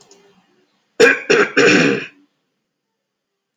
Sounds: Throat clearing